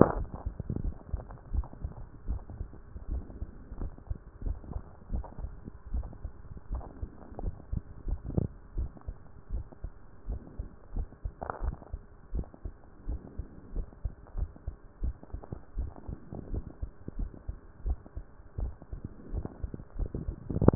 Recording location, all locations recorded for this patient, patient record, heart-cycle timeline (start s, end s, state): mitral valve (MV)
pulmonary valve (PV)+tricuspid valve (TV)+mitral valve (MV)
#Age: Adolescent
#Sex: Male
#Height: 153.0 cm
#Weight: 33.3 kg
#Pregnancy status: False
#Murmur: Absent
#Murmur locations: nan
#Most audible location: nan
#Systolic murmur timing: nan
#Systolic murmur shape: nan
#Systolic murmur grading: nan
#Systolic murmur pitch: nan
#Systolic murmur quality: nan
#Diastolic murmur timing: nan
#Diastolic murmur shape: nan
#Diastolic murmur grading: nan
#Diastolic murmur pitch: nan
#Diastolic murmur quality: nan
#Outcome: Abnormal
#Campaign: 2014 screening campaign
0.00	1.35	unannotated
1.35	1.52	diastole
1.52	1.66	S1
1.66	1.82	systole
1.82	1.92	S2
1.92	2.28	diastole
2.28	2.40	S1
2.40	2.58	systole
2.58	2.68	S2
2.68	3.10	diastole
3.10	3.24	S1
3.24	3.40	systole
3.40	3.48	S2
3.48	3.80	diastole
3.80	3.92	S1
3.92	4.08	systole
4.08	4.18	S2
4.18	4.44	diastole
4.44	4.56	S1
4.56	4.72	systole
4.72	4.82	S2
4.82	5.12	diastole
5.12	5.24	S1
5.24	5.40	systole
5.40	5.50	S2
5.50	5.92	diastole
5.92	6.06	S1
6.06	6.24	systole
6.24	6.32	S2
6.32	6.70	diastole
6.70	6.84	S1
6.84	7.00	systole
7.00	7.10	S2
7.10	7.42	diastole
7.42	7.54	S1
7.54	7.72	systole
7.72	7.82	S2
7.82	8.06	diastole
8.06	8.20	S1
8.20	8.36	systole
8.36	8.48	S2
8.48	8.76	diastole
8.76	8.90	S1
8.90	9.06	systole
9.06	9.16	S2
9.16	9.52	diastole
9.52	9.64	S1
9.64	9.82	systole
9.82	9.92	S2
9.92	10.28	diastole
10.28	10.40	S1
10.40	10.58	systole
10.58	10.68	S2
10.68	10.94	diastole
10.94	11.08	S1
11.08	11.24	systole
11.24	11.32	S2
11.32	11.62	diastole
11.62	11.76	S1
11.76	11.92	systole
11.92	12.00	S2
12.00	12.34	diastole
12.34	12.46	S1
12.46	12.64	systole
12.64	12.74	S2
12.74	13.08	diastole
13.08	13.20	S1
13.20	13.38	systole
13.38	13.46	S2
13.46	13.74	diastole
13.74	13.86	S1
13.86	14.04	systole
14.04	14.12	S2
14.12	14.36	diastole
14.36	14.50	S1
14.50	14.66	systole
14.66	14.76	S2
14.76	15.02	diastole
15.02	15.14	S1
15.14	15.32	systole
15.32	15.42	S2
15.42	15.76	diastole
15.76	15.90	S1
15.90	16.08	systole
16.08	16.18	S2
16.18	16.52	diastole
16.52	16.64	S1
16.64	16.82	systole
16.82	16.90	S2
16.90	17.18	diastole
17.18	17.30	S1
17.30	17.48	systole
17.48	17.56	S2
17.56	17.84	diastole
17.84	17.98	S1
17.98	18.16	systole
18.16	18.24	S2
18.24	18.60	diastole
18.60	18.72	S1
18.72	18.92	systole
18.92	19.00	S2
19.00	19.32	diastole
19.32	19.46	S1
19.46	19.62	systole
19.62	19.72	S2
19.72	19.98	diastole
19.98	20.75	unannotated